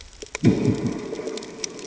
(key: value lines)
label: anthrophony, bomb
recorder: HydroMoth